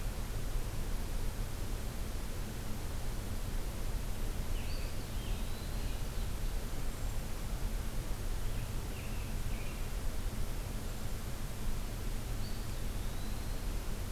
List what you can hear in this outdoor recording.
American Robin, Eastern Wood-Pewee